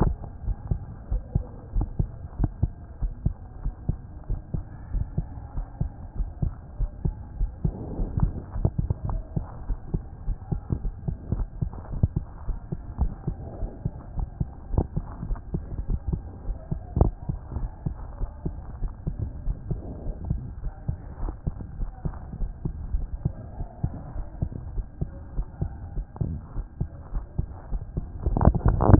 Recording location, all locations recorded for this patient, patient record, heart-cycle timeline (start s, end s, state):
aortic valve (AV)
aortic valve (AV)+pulmonary valve (PV)+tricuspid valve (TV)+mitral valve (MV)
#Age: Child
#Sex: Female
#Height: 120.0 cm
#Weight: 20.0 kg
#Pregnancy status: False
#Murmur: Absent
#Murmur locations: nan
#Most audible location: nan
#Systolic murmur timing: nan
#Systolic murmur shape: nan
#Systolic murmur grading: nan
#Systolic murmur pitch: nan
#Systolic murmur quality: nan
#Diastolic murmur timing: nan
#Diastolic murmur shape: nan
#Diastolic murmur grading: nan
#Diastolic murmur pitch: nan
#Diastolic murmur quality: nan
#Outcome: Abnormal
#Campaign: 2014 screening campaign
0.00	0.97	unannotated
0.97	1.10	diastole
1.10	1.22	S1
1.22	1.34	systole
1.34	1.44	S2
1.44	1.74	diastole
1.74	1.88	S1
1.88	1.98	systole
1.98	2.08	S2
2.08	2.40	diastole
2.40	2.50	S1
2.50	2.62	systole
2.62	2.72	S2
2.72	3.02	diastole
3.02	3.12	S1
3.12	3.24	systole
3.24	3.34	S2
3.34	3.64	diastole
3.64	3.74	S1
3.74	3.88	systole
3.88	3.98	S2
3.98	4.28	diastole
4.28	4.40	S1
4.40	4.54	systole
4.54	4.64	S2
4.64	4.94	diastole
4.94	5.06	S1
5.06	5.18	systole
5.18	5.26	S2
5.26	5.56	diastole
5.56	5.66	S1
5.66	5.80	systole
5.80	5.90	S2
5.90	6.18	diastole
6.18	6.30	S1
6.30	6.42	systole
6.42	6.52	S2
6.52	6.80	diastole
6.80	6.90	S1
6.90	7.04	systole
7.04	7.14	S2
7.14	7.38	diastole
7.38	7.50	S1
7.50	7.64	systole
7.64	7.74	S2
7.74	8.00	diastole
8.00	8.10	S1
8.10	8.20	systole
8.20	8.32	S2
8.32	8.56	diastole
8.56	8.70	S1
8.70	8.80	systole
8.80	8.88	S2
8.88	9.08	diastole
9.08	9.20	S1
9.20	9.36	systole
9.36	9.46	S2
9.46	9.68	diastole
9.68	9.78	S1
9.78	9.92	systole
9.92	10.02	S2
10.02	10.25	diastole
10.25	10.38	S1
10.38	10.50	systole
10.50	10.60	S2
10.60	10.84	diastole
10.84	10.94	S1
10.94	11.06	systole
11.06	11.14	S2
11.14	11.36	diastole
11.36	11.46	S1
11.46	11.60	systole
11.60	11.70	S2
11.70	11.94	diastole
11.94	12.10	S1
12.10	12.22	systole
12.22	12.28	S2
12.28	12.50	diastole
12.50	12.58	S1
12.58	12.70	systole
12.70	12.76	S2
12.76	13.00	diastole
13.00	13.12	S1
13.12	13.26	systole
13.26	13.36	S2
13.36	13.60	diastole
13.60	13.72	S1
13.72	13.84	systole
13.84	13.94	S2
13.94	14.16	diastole
14.16	14.28	S1
14.28	14.40	systole
14.40	14.48	S2
14.48	14.72	diastole
14.72	14.86	S1
14.86	14.96	systole
14.96	15.06	S2
15.06	15.26	diastole
15.26	15.38	S1
15.38	15.52	systole
15.52	15.62	S2
15.62	15.88	diastole
15.88	16.00	S1
16.00	16.10	systole
16.10	16.22	S2
16.22	16.46	diastole
16.46	16.58	S1
16.58	16.70	systole
16.70	16.80	S2
16.80	16.96	diastole
16.96	17.12	S1
17.12	17.28	systole
17.28	17.38	S2
17.38	17.58	diastole
17.58	17.70	S1
17.70	17.84	systole
17.84	17.96	S2
17.96	18.20	diastole
18.20	18.30	S1
18.30	18.46	systole
18.46	18.56	S2
18.56	18.82	diastole
18.82	18.92	S1
18.92	19.06	systole
19.06	19.16	S2
19.16	19.46	diastole
19.46	19.56	S1
19.56	19.70	systole
19.70	19.80	S2
19.80	20.08	diastole
20.08	20.16	S1
20.16	20.30	systole
20.30	20.42	S2
20.42	20.64	diastole
20.64	28.99	unannotated